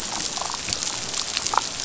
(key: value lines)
label: biophony, damselfish
recorder: SoundTrap 500